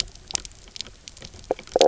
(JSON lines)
{"label": "biophony, knock croak", "recorder": "SoundTrap 300"}